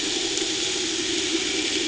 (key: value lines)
label: anthrophony, boat engine
recorder: HydroMoth